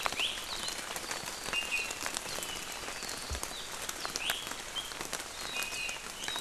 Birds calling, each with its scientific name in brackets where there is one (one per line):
Iiwi (Drepanis coccinea)